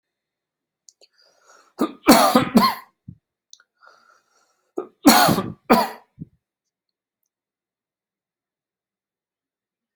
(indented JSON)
{
  "expert_labels": [
    {
      "quality": "good",
      "cough_type": "wet",
      "dyspnea": false,
      "wheezing": false,
      "stridor": false,
      "choking": false,
      "congestion": false,
      "nothing": true,
      "diagnosis": "upper respiratory tract infection",
      "severity": "mild"
    }
  ],
  "age": 40,
  "gender": "male",
  "respiratory_condition": false,
  "fever_muscle_pain": false,
  "status": "symptomatic"
}